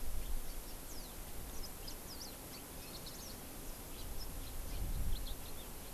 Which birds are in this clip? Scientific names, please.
Zosterops japonicus, Haemorhous mexicanus